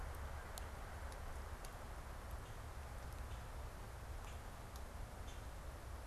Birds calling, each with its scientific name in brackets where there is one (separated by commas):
Common Grackle (Quiscalus quiscula)